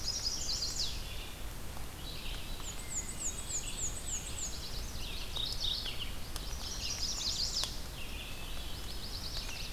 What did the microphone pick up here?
Chestnut-sided Warbler, Red-eyed Vireo, Black-and-white Warbler, Hermit Thrush, Yellow-rumped Warbler, Mourning Warbler